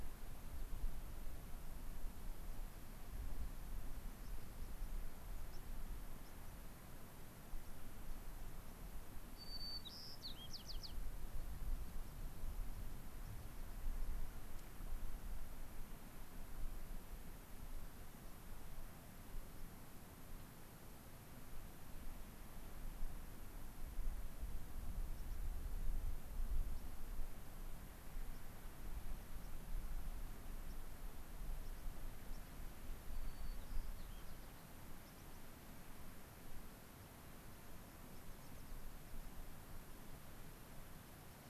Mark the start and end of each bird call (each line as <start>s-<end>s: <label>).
4.2s-4.4s: White-crowned Sparrow (Zonotrichia leucophrys)
5.5s-5.6s: White-crowned Sparrow (Zonotrichia leucophrys)
6.2s-6.6s: White-crowned Sparrow (Zonotrichia leucophrys)
9.4s-11.0s: White-crowned Sparrow (Zonotrichia leucophrys)
25.1s-25.4s: White-crowned Sparrow (Zonotrichia leucophrys)
26.7s-26.8s: White-crowned Sparrow (Zonotrichia leucophrys)
28.3s-28.4s: White-crowned Sparrow (Zonotrichia leucophrys)
29.4s-29.5s: White-crowned Sparrow (Zonotrichia leucophrys)
30.6s-30.8s: White-crowned Sparrow (Zonotrichia leucophrys)
31.6s-31.8s: White-crowned Sparrow (Zonotrichia leucophrys)
32.3s-32.4s: White-crowned Sparrow (Zonotrichia leucophrys)
33.0s-34.7s: White-crowned Sparrow (Zonotrichia leucophrys)
35.0s-35.4s: White-crowned Sparrow (Zonotrichia leucophrys)
38.1s-38.8s: American Pipit (Anthus rubescens)